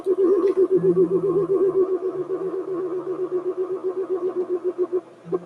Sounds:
Sigh